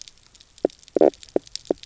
{"label": "biophony, knock croak", "recorder": "SoundTrap 300"}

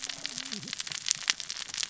{"label": "biophony, cascading saw", "recorder": "SoundTrap 600 or HydroMoth"}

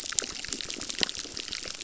{"label": "biophony, crackle", "recorder": "SoundTrap 600"}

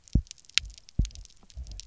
{"label": "biophony, double pulse", "recorder": "SoundTrap 300"}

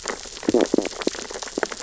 {"label": "biophony, stridulation", "recorder": "SoundTrap 600 or HydroMoth"}
{"label": "biophony, sea urchins (Echinidae)", "recorder": "SoundTrap 600 or HydroMoth"}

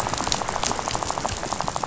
{"label": "biophony, rattle", "recorder": "SoundTrap 500"}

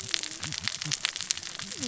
{"label": "biophony, cascading saw", "recorder": "SoundTrap 600 or HydroMoth"}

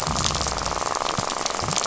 {"label": "biophony, rattle", "recorder": "SoundTrap 500"}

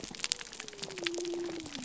{"label": "biophony", "recorder": "SoundTrap 300"}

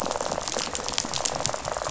{"label": "biophony, rattle", "recorder": "SoundTrap 500"}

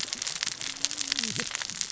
{"label": "biophony, cascading saw", "recorder": "SoundTrap 600 or HydroMoth"}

